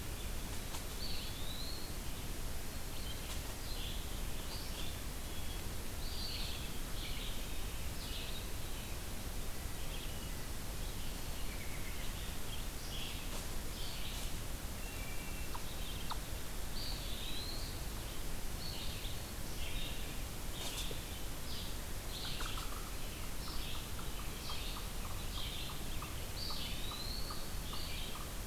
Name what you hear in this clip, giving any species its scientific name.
Vireo olivaceus, Contopus virens, Hylocichla mustelina, unknown mammal